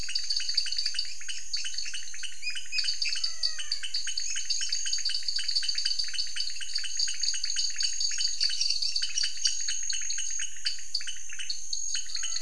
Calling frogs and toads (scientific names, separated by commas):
Dendropsophus nanus, Leptodactylus podicipinus, Physalaemus albonotatus